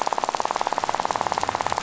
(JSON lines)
{"label": "biophony, rattle", "recorder": "SoundTrap 500"}